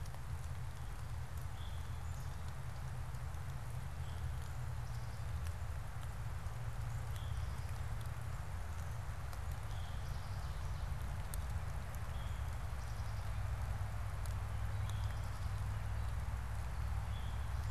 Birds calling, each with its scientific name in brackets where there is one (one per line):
Black-capped Chickadee (Poecile atricapillus)
Ovenbird (Seiurus aurocapilla)
Veery (Catharus fuscescens)